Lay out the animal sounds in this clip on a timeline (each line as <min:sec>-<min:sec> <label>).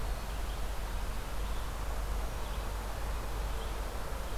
0:00.0-0:04.4 Red-eyed Vireo (Vireo olivaceus)